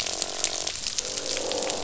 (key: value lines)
label: biophony, croak
recorder: SoundTrap 500